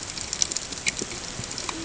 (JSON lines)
{"label": "ambient", "recorder": "HydroMoth"}